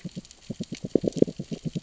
{"label": "biophony, grazing", "recorder": "SoundTrap 600 or HydroMoth"}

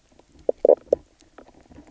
{"label": "biophony, knock croak", "recorder": "SoundTrap 300"}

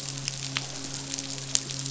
{"label": "biophony, midshipman", "recorder": "SoundTrap 500"}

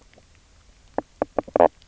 {"label": "biophony, knock croak", "recorder": "SoundTrap 300"}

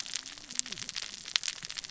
{"label": "biophony, cascading saw", "recorder": "SoundTrap 600 or HydroMoth"}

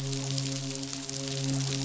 {"label": "biophony, midshipman", "recorder": "SoundTrap 500"}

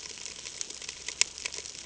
{"label": "ambient", "recorder": "HydroMoth"}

